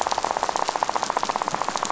{"label": "biophony, rattle", "recorder": "SoundTrap 500"}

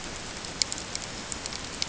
{"label": "ambient", "recorder": "HydroMoth"}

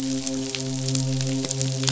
{"label": "biophony, midshipman", "recorder": "SoundTrap 500"}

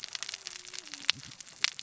{"label": "biophony, cascading saw", "recorder": "SoundTrap 600 or HydroMoth"}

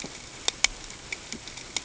{"label": "ambient", "recorder": "HydroMoth"}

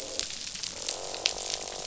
{"label": "biophony, croak", "recorder": "SoundTrap 500"}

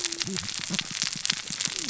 {"label": "biophony, cascading saw", "recorder": "SoundTrap 600 or HydroMoth"}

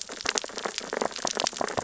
{"label": "biophony, sea urchins (Echinidae)", "recorder": "SoundTrap 600 or HydroMoth"}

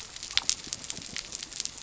{"label": "biophony", "recorder": "SoundTrap 300"}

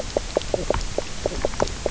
{"label": "biophony, knock croak", "recorder": "SoundTrap 300"}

